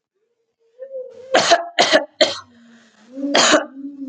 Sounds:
Cough